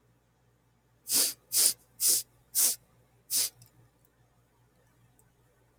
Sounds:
Sniff